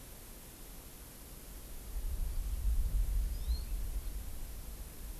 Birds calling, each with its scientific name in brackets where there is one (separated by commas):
Hawaii Amakihi (Chlorodrepanis virens)